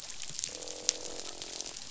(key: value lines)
label: biophony, croak
recorder: SoundTrap 500